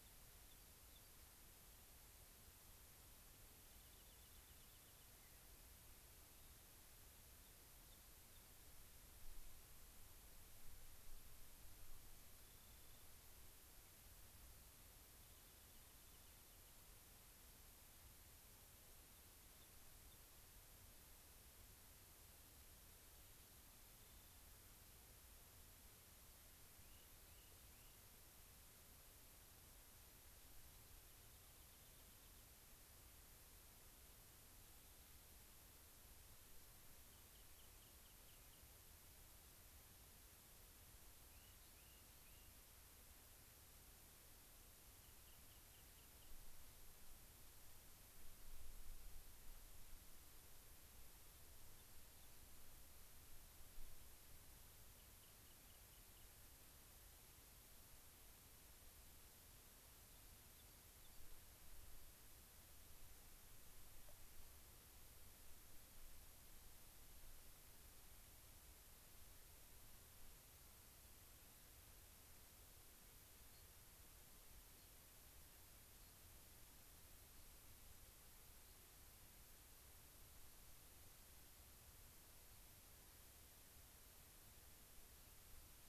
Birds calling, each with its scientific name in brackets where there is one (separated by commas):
unidentified bird, Rock Wren (Salpinctes obsoletus)